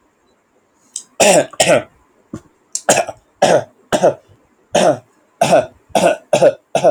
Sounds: Cough